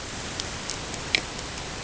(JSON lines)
{"label": "ambient", "recorder": "HydroMoth"}